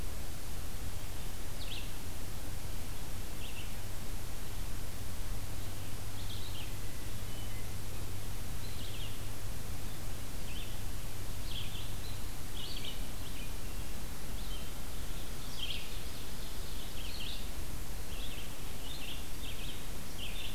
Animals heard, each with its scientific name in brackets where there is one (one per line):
Ovenbird (Seiurus aurocapilla)
Red-eyed Vireo (Vireo olivaceus)